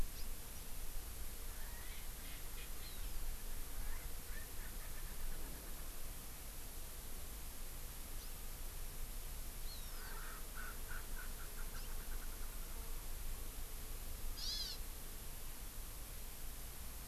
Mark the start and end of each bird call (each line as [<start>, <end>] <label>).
[0.08, 0.28] House Finch (Haemorhous mexicanus)
[1.48, 3.18] Erckel's Francolin (Pternistis erckelii)
[2.78, 3.38] Hawaii Amakihi (Chlorodrepanis virens)
[3.68, 6.08] Erckel's Francolin (Pternistis erckelii)
[8.18, 8.28] House Finch (Haemorhous mexicanus)
[9.58, 10.18] Hawaii Amakihi (Chlorodrepanis virens)
[9.88, 12.98] Erckel's Francolin (Pternistis erckelii)
[11.68, 11.88] House Finch (Haemorhous mexicanus)
[14.38, 14.78] Hawaii Amakihi (Chlorodrepanis virens)